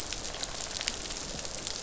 {"label": "biophony, rattle response", "recorder": "SoundTrap 500"}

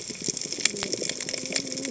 {"label": "biophony, cascading saw", "recorder": "HydroMoth"}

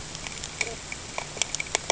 {"label": "ambient", "recorder": "HydroMoth"}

